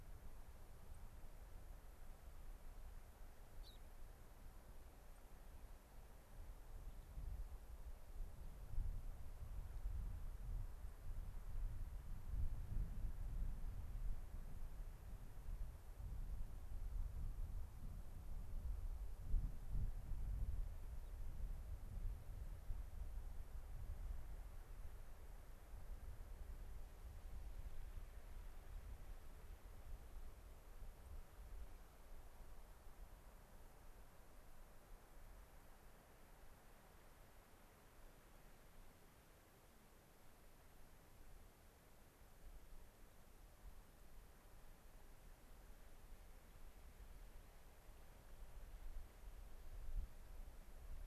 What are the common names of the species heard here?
White-crowned Sparrow, Gray-crowned Rosy-Finch, unidentified bird